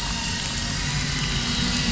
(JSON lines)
{"label": "anthrophony, boat engine", "recorder": "SoundTrap 500"}